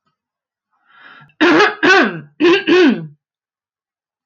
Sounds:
Throat clearing